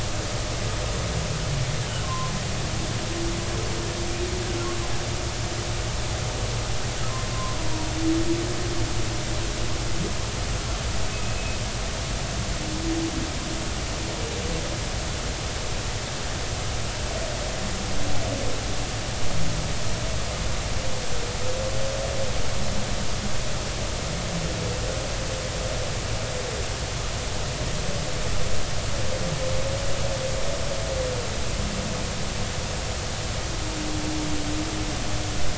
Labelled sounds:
2.0	2.3	humpback whale, 0.96 to 1.1 kHz
7.3	7.6	humpback whale, 0.99 to 1.1 kHz
11.1	11.6	humpback whale, 2.5 to 2.6 kHz

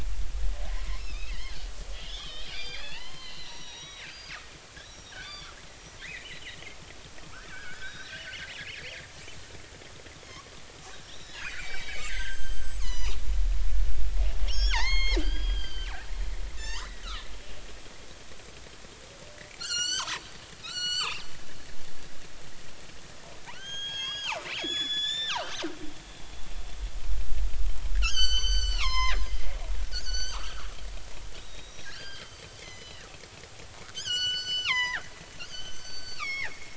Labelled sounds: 0.7	1.6	killer whale, northern resident, G clan, 1.8 to 5.4 kHz
1.9	6.3	killer whale, northern resident, G clan, 0.83 to 5.9 kHz
7.3	9.0	killer whale, northern resident, G clan, 1.2 to 5.9 kHz
11.1	13.2	killer whale, northern resident, G clan, 0.80 to 8.0 kHz
14.5	17.0	killer whale, northern resident, G clan, 0.80 to 7.6 kHz
19.6	20.2	killer whale, northern resident, G clan, 0.83 to 7.8 kHz
20.6	21.2	killer whale, northern resident, G clan, 0.86 to 7.6 kHz
23.5	25.6	killer whale, northern resident, G clan, 0.80 to 8.0 kHz
28.0	30.7	killer whale, northern resident, G clan, 0.80 to 7.9 kHz
31.4	33.1	killer whale, northern resident, G clan, 1.5 to 7.2 kHz
33.9	36.7	killer whale, northern resident, G clan, 0.80 to 7.8 kHz

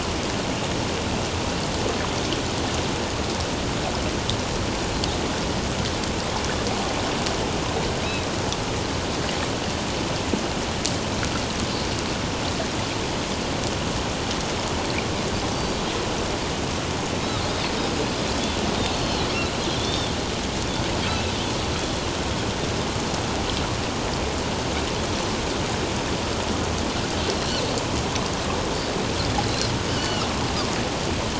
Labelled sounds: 18.9	20.2	Pacific white-sided dolphin, 3.1 to 4.4 kHz
21.1	21.3	Pacific white-sided dolphin, 2.5 to 2.7 kHz
29.5	30.3	Pacific white-sided dolphin, 2.7 to 4.3 kHz

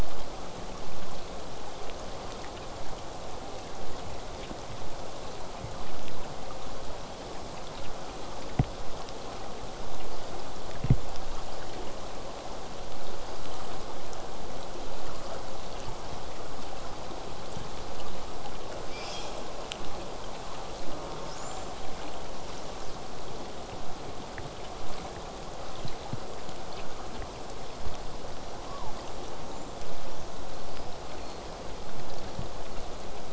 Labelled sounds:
18.9	19.5	killer whale, southern resident, J pod, 2.2 to 8.0 kHz
20.8	21.4	killer whale, southern resident, J pod, call S04, 0.17 to 1.5 kHz
21.3	21.8	killer whale, southern resident, J pod, whistle, 4.8 to 7.5 kHz
28.6	29.0	killer whale, southern resident, J pod, 0.21 to 1.2 kHz
29.4	31.4	killer whale, southern resident, J pod, whistle, 3.5 to 7.9 kHz

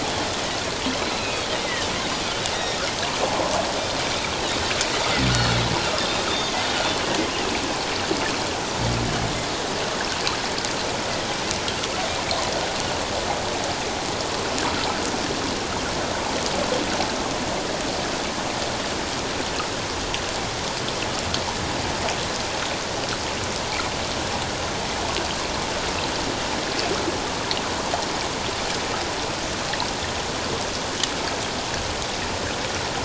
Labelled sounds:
1.0	1.9	Pacific white-sided dolphin, 1.7 to 4.2 kHz
2.5	2.8	Pacific white-sided dolphin, 3.6 to 5.8 kHz
7.3	7.6	Pacific white-sided dolphin, 2.5 to 2.9 kHz

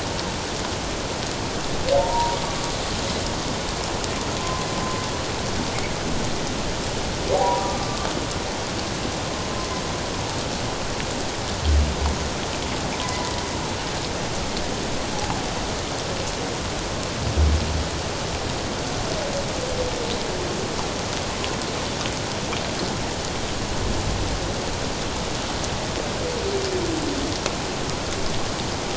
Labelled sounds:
2.0	2.4	humpback whale, 0.84 to 1.0 kHz
4.4	4.7	humpback whale, 0.97 to 1.1 kHz
7.6	8.0	humpback whale, 1.1 to 1.2 kHz
13.0	13.3	humpback whale, 1.9 to 2.1 kHz

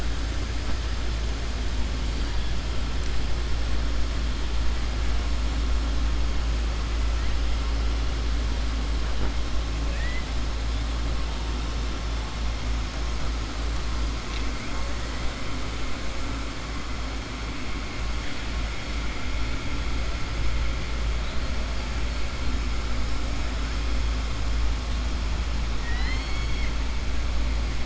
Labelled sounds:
25.7	26.7	killer whale, southern resident, 0.77 to 5.3 kHz

